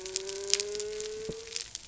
{"label": "biophony", "recorder": "SoundTrap 300"}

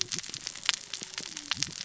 {"label": "biophony, cascading saw", "recorder": "SoundTrap 600 or HydroMoth"}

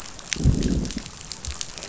{"label": "biophony, growl", "recorder": "SoundTrap 500"}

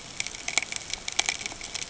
{"label": "ambient", "recorder": "HydroMoth"}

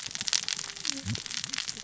{"label": "biophony, cascading saw", "recorder": "SoundTrap 600 or HydroMoth"}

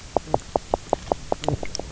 {"label": "biophony, knock croak", "recorder": "SoundTrap 300"}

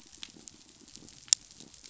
{"label": "biophony", "recorder": "SoundTrap 500"}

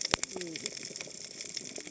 {"label": "biophony, cascading saw", "recorder": "HydroMoth"}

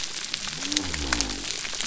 {"label": "biophony", "recorder": "SoundTrap 300"}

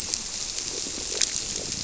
{"label": "biophony", "recorder": "SoundTrap 300"}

